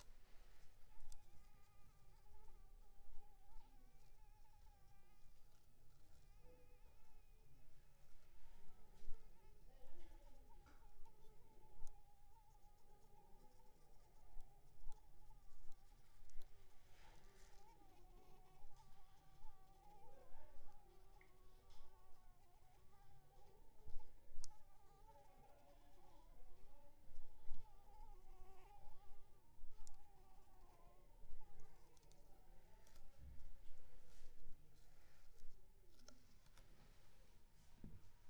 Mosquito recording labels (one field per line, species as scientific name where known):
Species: Anopheles arabiensis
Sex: female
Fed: unfed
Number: one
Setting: cup